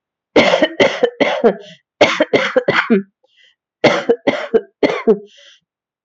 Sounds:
Cough